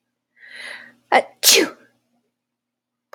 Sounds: Sneeze